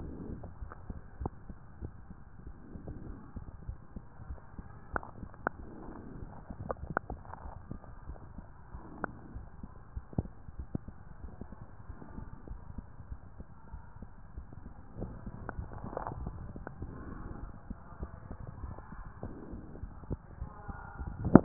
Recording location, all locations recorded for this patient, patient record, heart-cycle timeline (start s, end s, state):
mitral valve (MV)
aortic valve (AV)+pulmonary valve (PV)+tricuspid valve (TV)+mitral valve (MV)
#Age: Child
#Sex: Female
#Height: 133.0 cm
#Weight: 47.7 kg
#Pregnancy status: False
#Murmur: Absent
#Murmur locations: nan
#Most audible location: nan
#Systolic murmur timing: nan
#Systolic murmur shape: nan
#Systolic murmur grading: nan
#Systolic murmur pitch: nan
#Systolic murmur quality: nan
#Diastolic murmur timing: nan
#Diastolic murmur shape: nan
#Diastolic murmur grading: nan
#Diastolic murmur pitch: nan
#Diastolic murmur quality: nan
#Outcome: Normal
#Campaign: 2015 screening campaign
0.00	9.32	unannotated
9.32	9.46	S1
9.46	9.58	systole
9.58	9.68	S2
9.68	9.92	diastole
9.92	10.06	S1
10.06	10.18	systole
10.18	10.32	S2
10.32	10.54	diastole
10.54	10.66	S1
10.66	10.84	systole
10.84	10.94	S2
10.94	11.20	diastole
11.20	11.34	S1
11.34	11.52	systole
11.52	11.62	S2
11.62	11.86	diastole
11.86	11.94	S1
11.94	12.14	systole
12.14	12.26	S2
12.26	12.48	diastole
12.48	12.60	S1
12.60	12.76	systole
12.76	12.84	S2
12.84	13.08	diastole
13.08	13.18	S1
13.18	13.38	systole
13.38	13.47	S2
13.47	13.72	diastole
13.72	13.84	S1
13.84	14.00	systole
14.00	14.09	S2
14.09	14.34	diastole
14.34	14.46	S1
14.46	14.62	systole
14.62	14.72	S2
14.72	14.96	diastole
14.96	21.44	unannotated